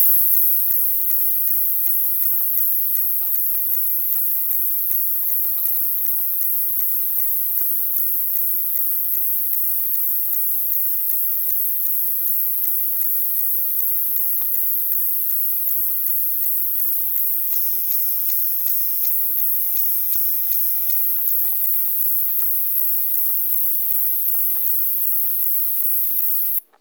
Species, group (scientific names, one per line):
Pycnogaster jugicola
Orthoptera